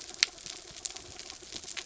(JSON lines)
{"label": "anthrophony, mechanical", "recorder": "SoundTrap 300"}